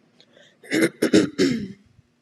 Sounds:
Throat clearing